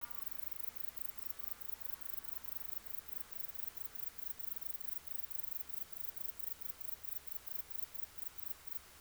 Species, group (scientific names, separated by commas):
Bicolorana bicolor, Orthoptera